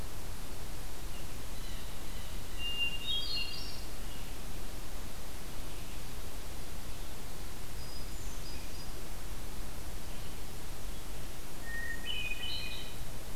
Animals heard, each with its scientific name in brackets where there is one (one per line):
Hermit Thrush (Catharus guttatus)
Blue Jay (Cyanocitta cristata)